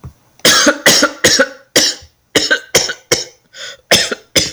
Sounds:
Cough